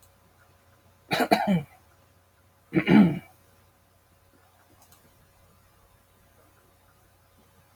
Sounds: Throat clearing